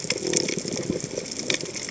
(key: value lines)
label: biophony
recorder: HydroMoth